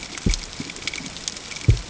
{"label": "ambient", "recorder": "HydroMoth"}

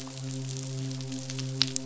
{"label": "biophony, midshipman", "recorder": "SoundTrap 500"}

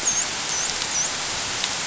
{"label": "biophony, dolphin", "recorder": "SoundTrap 500"}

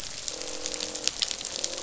{"label": "biophony, croak", "recorder": "SoundTrap 500"}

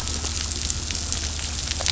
{"label": "anthrophony, boat engine", "recorder": "SoundTrap 500"}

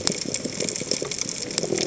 {"label": "biophony", "recorder": "HydroMoth"}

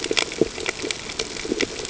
{"label": "ambient", "recorder": "HydroMoth"}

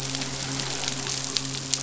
{"label": "biophony, midshipman", "recorder": "SoundTrap 500"}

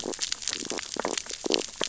{"label": "biophony, stridulation", "recorder": "SoundTrap 600 or HydroMoth"}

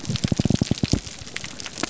{"label": "biophony", "recorder": "SoundTrap 300"}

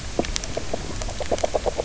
{"label": "biophony, knock croak", "recorder": "SoundTrap 300"}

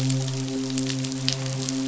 {"label": "biophony, midshipman", "recorder": "SoundTrap 500"}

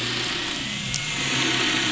{"label": "anthrophony, boat engine", "recorder": "SoundTrap 500"}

